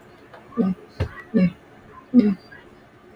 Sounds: Throat clearing